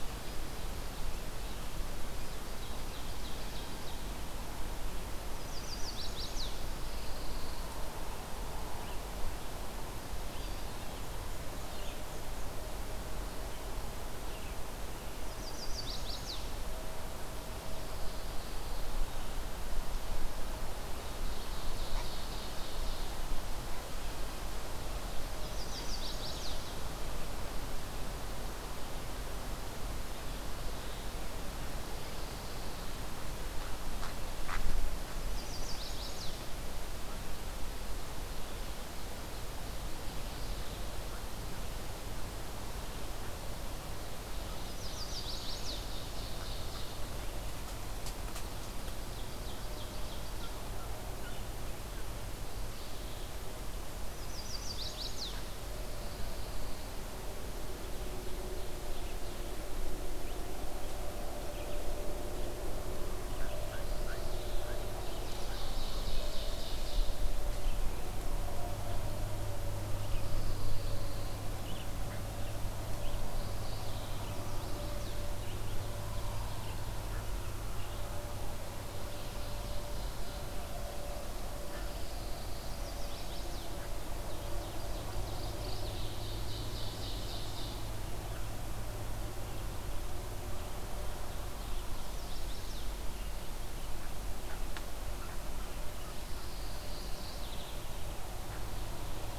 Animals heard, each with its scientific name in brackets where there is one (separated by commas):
Black-and-white Warbler (Mniotilta varia), Red-eyed Vireo (Vireo olivaceus), Pine Warbler (Setophaga pinus), Ovenbird (Seiurus aurocapilla), Chestnut-sided Warbler (Setophaga pensylvanica), Mourning Warbler (Geothlypis philadelphia)